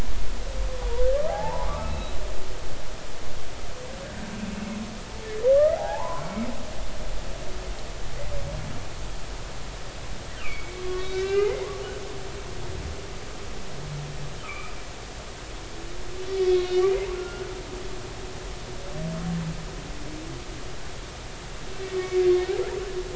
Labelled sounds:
1.3	2.1	humpback whale, 0.80 to 4.0 kHz
5.5	6.4	humpback whale, 0.80 to 1.4 kHz
10.4	11.7	humpback whale, 1.1 to 3.9 kHz
14.4	14.7	humpback whale, 1.1 to 2.6 kHz
16.3	17.5	humpback whale, 1.3 to 3.5 kHz
21.9	22.2	humpback whale, 2.2 to 2.3 kHz

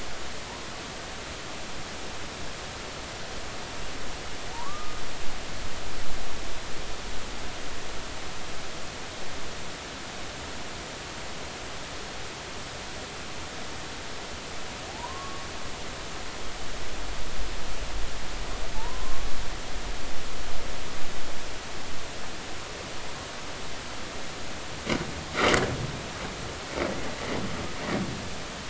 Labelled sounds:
4.5	5.0	humpback whale, 0.80 to 1.3 kHz
15.9	16.4	humpback whale, 0.80 to 1.2 kHz
18.8	19.3	humpback whale, 0.83 to 1.2 kHz

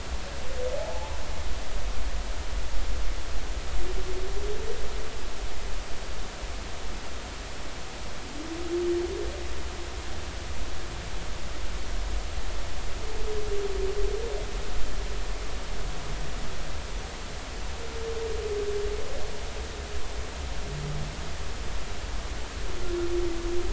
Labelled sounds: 0.7	1.2	humpback whale, 0.80 to 1.0 kHz

